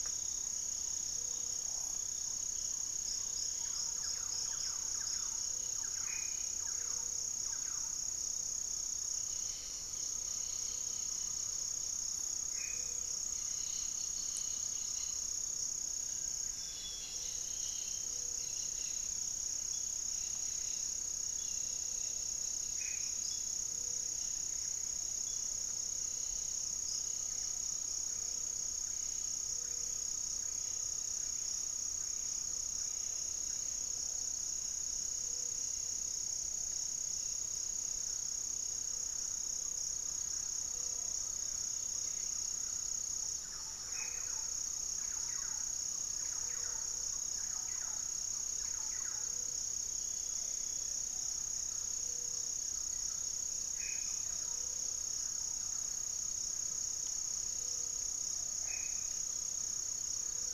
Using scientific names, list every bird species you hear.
Trogon melanurus, unidentified bird, Leptotila rufaxilla, Campylorhynchus turdinus, Formicarius analis, Taraba major, Phlegopsis nigromaculata, Cantorchilus leucotis